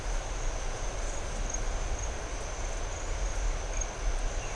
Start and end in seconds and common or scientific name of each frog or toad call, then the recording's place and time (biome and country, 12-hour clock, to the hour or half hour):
none
Atlantic Forest, Brazil, ~7pm